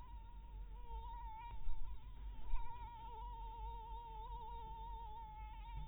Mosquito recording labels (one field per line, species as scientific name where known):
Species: Anopheles maculatus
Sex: female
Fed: blood-fed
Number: one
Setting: cup